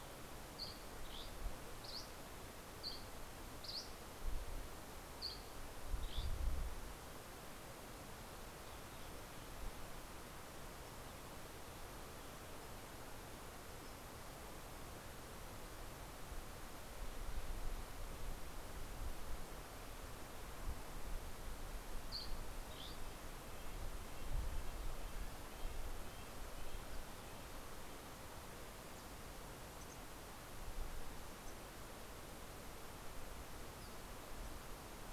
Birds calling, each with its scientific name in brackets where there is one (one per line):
Dusky Flycatcher (Empidonax oberholseri)
Red-breasted Nuthatch (Sitta canadensis)